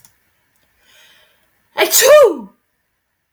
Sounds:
Sneeze